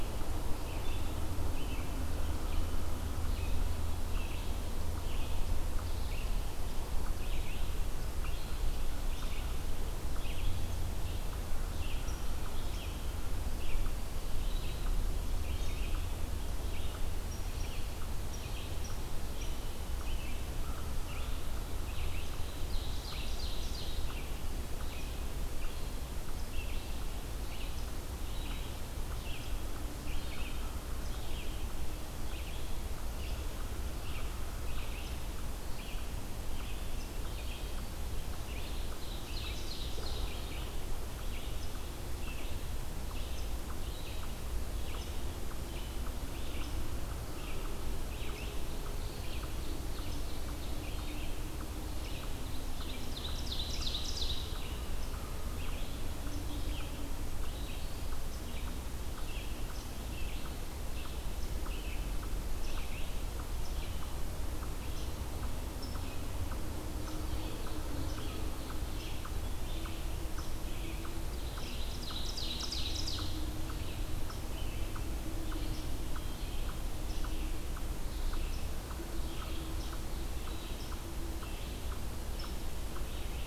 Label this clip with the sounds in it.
Red-eyed Vireo, unknown mammal, American Crow, Ovenbird